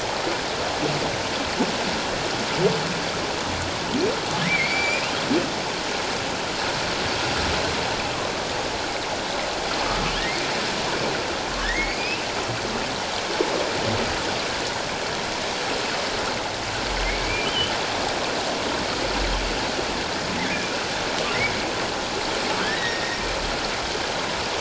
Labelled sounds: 4.5	5.1	humpback whale, 2.0 to 2.8 kHz
11.6	12.2	humpback whale, 1.6 to 5.2 kHz
17.2	17.7	humpback whale, 2.2 to 3.2 kHz
22.6	23.2	humpback whale, 1.4 to 3.9 kHz

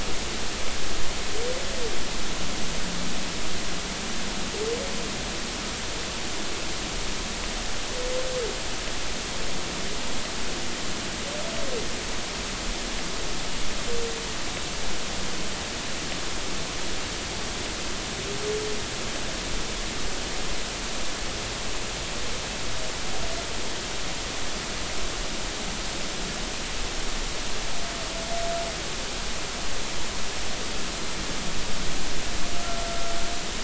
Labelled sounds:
32.6	33.1	humpback whale, 1.3 to 1.5 kHz

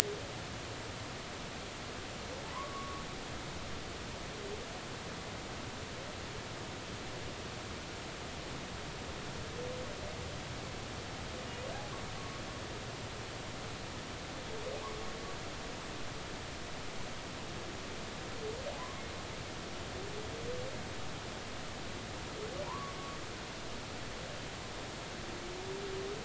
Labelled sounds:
2.5	3.0	humpback whale, 0.93 to 1.2 kHz
18.8	19.0	humpback whale, 0.96 to 1.2 kHz
22.7	23.0	humpback whale, 0.86 to 1.2 kHz

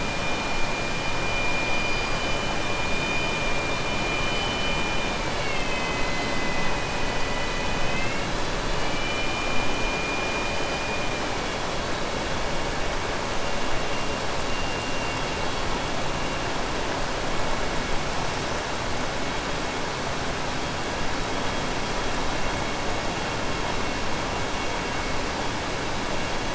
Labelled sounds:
8.6	9.7	killer whale, southern resident, 1.8 to 4.7 kHz

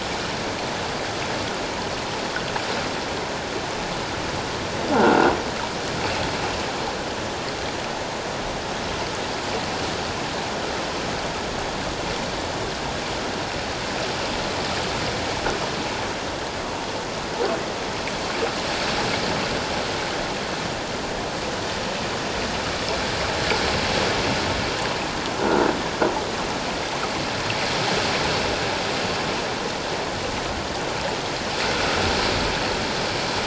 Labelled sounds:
4.9	5.3	croaking sound likely from a nearby submerged object, 1.3 to 1.7 kHz

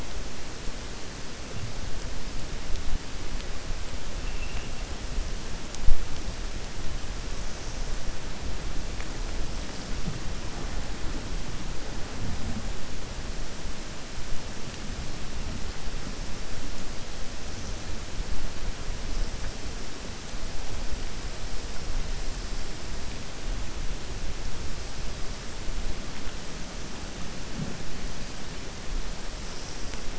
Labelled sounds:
4.2	4.7	killer whale, 1.8 to 3.0 kHz

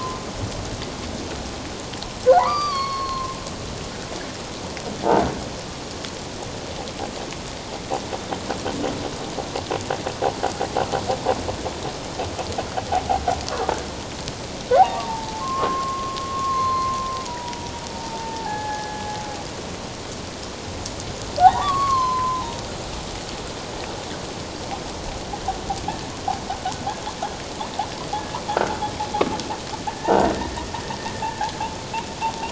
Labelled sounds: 2.3	3.4	humpback whale, 0.78 to 6.0 kHz
14.8	19.1	humpback whale, 0.78 to 4.3 kHz
21.4	22.6	humpback whale, 0.78 to 4.5 kHz
29.9	30.2	humpback whale, 1.7 to 1.9 kHz

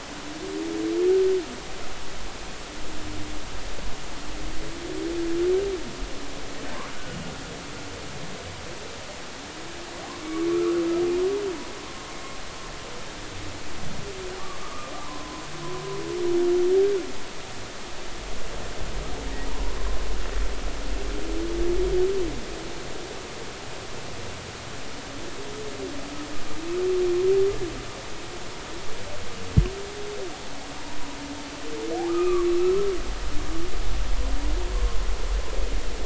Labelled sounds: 10.5	10.8	humpback whale, 1.1 to 1.5 kHz
14.6	15.4	humpback whale, 0.93 to 1.3 kHz
19.5	19.8	humpback whale, 0.90 to 1.1 kHz
32.1	32.5	humpback whale, 1.0 to 2.6 kHz

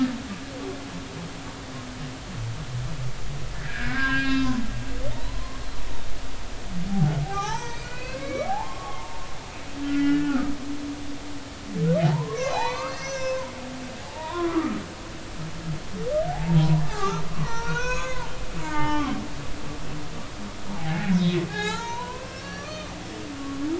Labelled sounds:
3.6	5.6	humpback whale, 0.96 to 5.1 kHz
6.9	9.2	humpback whale, 0.80 to 6.3 kHz
9.9	10.5	humpback whale, 1.2 to 2.0 kHz
12.0	14.8	humpback whale, 0.80 to 6.6 kHz
16.3	18.3	humpback whale, 0.80 to 6.8 kHz
18.6	19.2	humpback whale, 0.80 to 3.3 kHz
20.7	22.9	humpback whale, 0.80 to 7.0 kHz

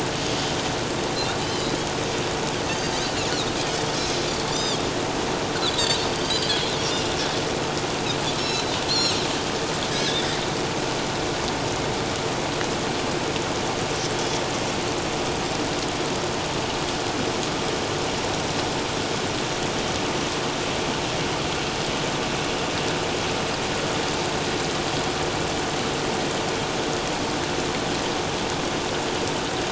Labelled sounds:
2.7	3.2	Pacific white-sided dolphin, 4.4 to 4.8 kHz
4.3	4.8	Pacific white-sided dolphin, 3.2 to 7.5 kHz
5.7	7.0	Pacific white-sided dolphin, 3.4 to 6.1 kHz
8.4	9.2	Pacific white-sided dolphin, 3.8 to 5.9 kHz
9.9	10.4	Pacific white-sided dolphin, 3.1 to 6.3 kHz

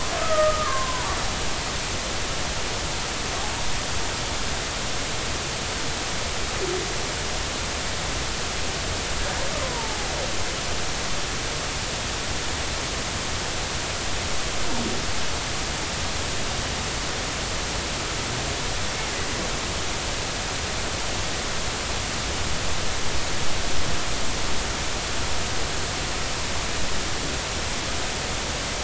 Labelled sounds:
0.2	1.1	humpback whale, 0.86 to 1.4 kHz
9.6	10.1	humpback whale, 0.80 to 1.1 kHz

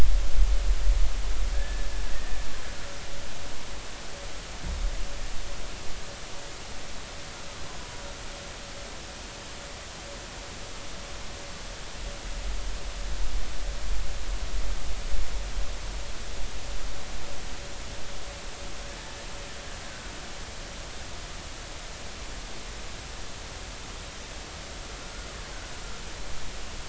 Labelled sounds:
1.5	1.9	killer whale, Bigg's (transient), 1.6 to 1.8 kHz
2.1	2.4	killer whale, Bigg's (transient), 1.7 to 2.0 kHz
25.0	25.3	killer whale, Bigg's (transient), 1.4 to 1.5 kHz

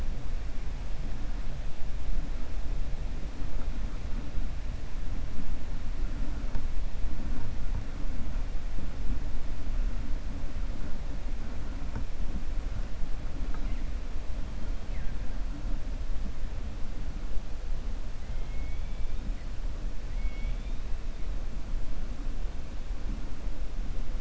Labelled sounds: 20.1	20.8	killer whale, 1.9 to 3.7 kHz

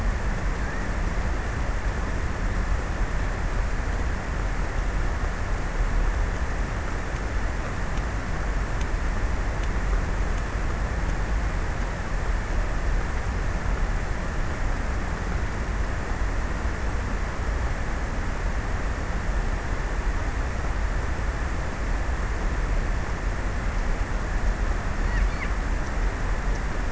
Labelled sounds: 24.4	25.8	killer whale, offshore, 1.1 to 3.9 kHz

